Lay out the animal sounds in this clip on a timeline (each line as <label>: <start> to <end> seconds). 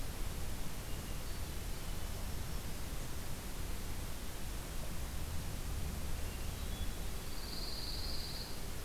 Hermit Thrush (Catharus guttatus): 0.6 to 2.1 seconds
Black-throated Green Warbler (Setophaga virens): 1.8 to 3.2 seconds
Hermit Thrush (Catharus guttatus): 5.9 to 7.1 seconds
Pine Warbler (Setophaga pinus): 7.1 to 8.6 seconds